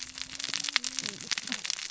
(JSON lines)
{"label": "biophony, cascading saw", "recorder": "SoundTrap 600 or HydroMoth"}